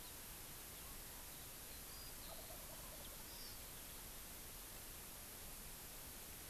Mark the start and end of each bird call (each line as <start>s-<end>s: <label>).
2.2s-3.5s: Wild Turkey (Meleagris gallopavo)
3.2s-3.7s: Hawaii Amakihi (Chlorodrepanis virens)